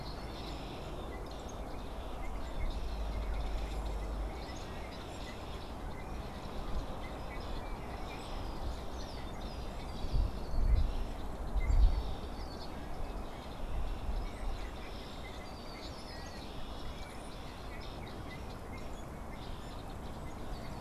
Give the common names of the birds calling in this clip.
Red-winged Blackbird, unidentified bird, Brown-headed Cowbird